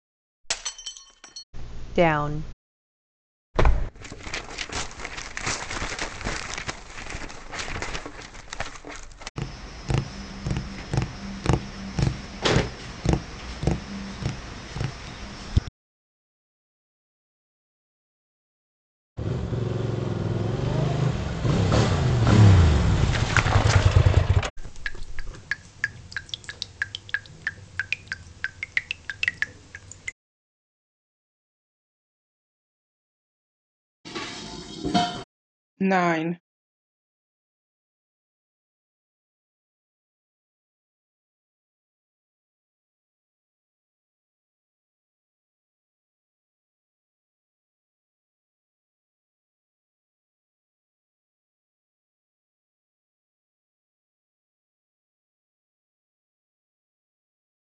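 At the start, glass shatters. After that, about 2 seconds in, a voice says "down". Later, about 4 seconds in, tearing can be heard. Following that, about 9 seconds in, tapping is audible. Afterwards, about 19 seconds in, you can hear a motorcycle. Later, about 25 seconds in, dripping is heard. Afterwards, about 34 seconds in, dishes can be heard. Next, at about 36 seconds, someone says "nine."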